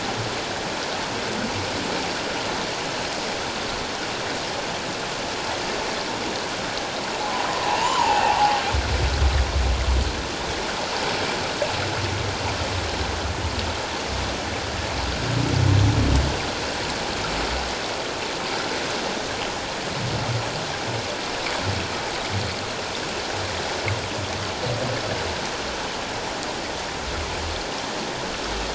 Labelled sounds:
7.7	8.6	humpback whale, 0.78 to 3.2 kHz

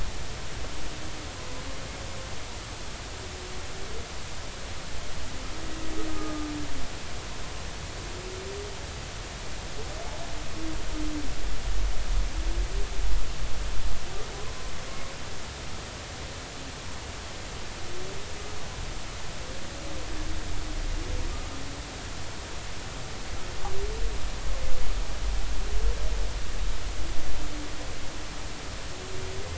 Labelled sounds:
6.1	6.5	humpback whale, 1.2 to 1.3 kHz

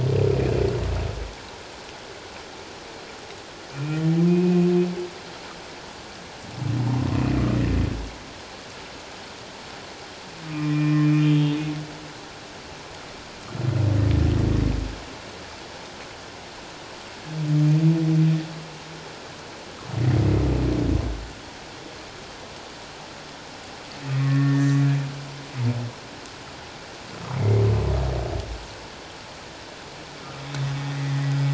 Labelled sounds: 4.3	4.7	humpback whale, 2.4 to 2.7 kHz
10.4	11.3	humpback whale, 1.2 to 2.5 kHz
24.1	24.8	humpback whale, 1.1 to 2.0 kHz
27.3	27.6	humpback whale, 2.0 to 2.3 kHz
30.9	31.2	humpback whale, 1.9 to 2.1 kHz

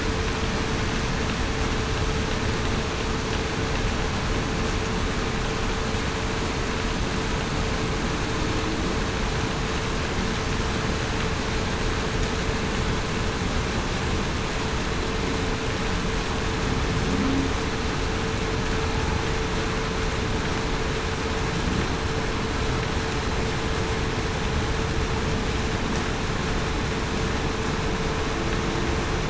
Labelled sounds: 17.1	17.5	humpback whale, 0.19 to 0.33 kHz

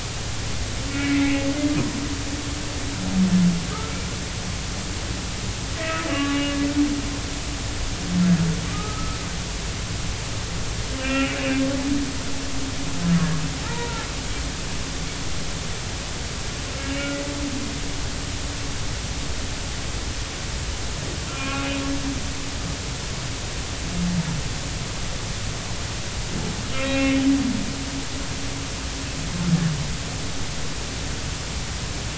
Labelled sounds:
0.9	1.5	humpback whale, 1.9 to 2.4 kHz
5.8	6.4	humpback whale, 1.1 to 2.0 kHz
8.7	9.2	humpback whale, 1.1 to 1.4 kHz
11.0	11.3	humpback whale, 1.3 to 2.8 kHz
13.6	14.1	humpback whale, 0.83 to 1.0 kHz
16.9	17.2	humpback whale, 2.7 to 3.0 kHz
21.3	21.8	humpback whale, 1.0 to 2.7 kHz
26.7	27.3	humpback whale, 2.3 to 3.1 kHz

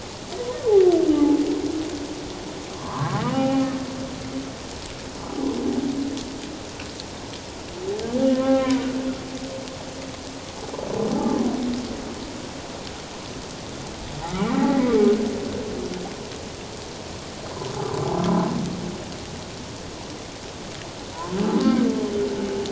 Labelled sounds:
1.1	1.4	humpback whale, 0.81 to 0.91 kHz
2.7	3.6	humpback whale, 0.78 to 3.0 kHz
8.3	8.7	humpback whale, 1.0 to 2.2 kHz
11.1	11.4	humpback whale, 0.78 to 0.91 kHz
14.3	14.5	humpback whale, 1.2 to 1.5 kHz
21.6	21.9	humpback whale, 1.5 to 1.6 kHz

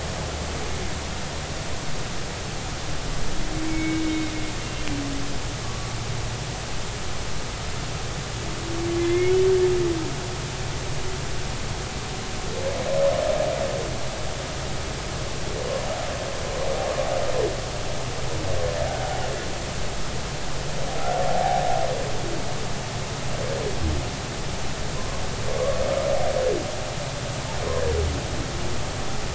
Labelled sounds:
3.5	4.9	humpback whale, 2.1 to 2.8 kHz
5.6	5.9	humpback whale, 1.1 to 1.2 kHz
9.0	9.3	humpback whale, 2.0 to 2.2 kHz
25.0	25.2	humpback whale, 0.96 to 1.1 kHz

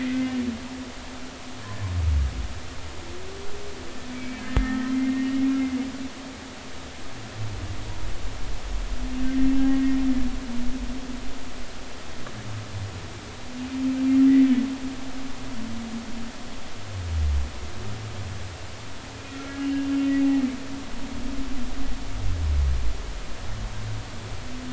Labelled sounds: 4.1	5.4	humpback whale, 1.8 to 2.4 kHz
9.7	10.0	humpback whale, 1.8 to 2.0 kHz
19.1	19.9	humpback whale, 1.3 to 2.9 kHz

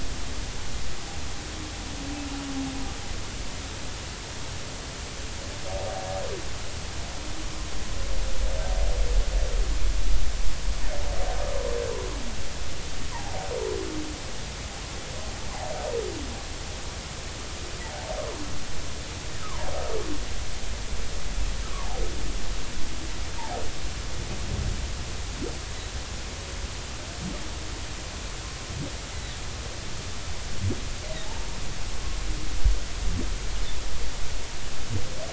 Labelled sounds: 19.4	19.7	humpback whale, 0.86 to 1.4 kHz
21.7	22.0	humpback whale, 0.80 to 1.2 kHz
31.3	31.6	humpback whale, 0.80 to 1.1 kHz

